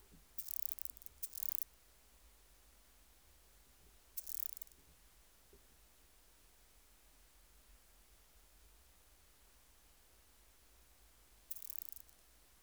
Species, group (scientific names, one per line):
Omocestus petraeus
Orthoptera